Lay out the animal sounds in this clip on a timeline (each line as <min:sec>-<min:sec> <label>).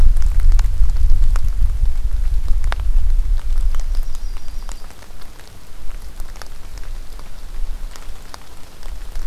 0:03.4-0:05.0 Yellow-rumped Warbler (Setophaga coronata)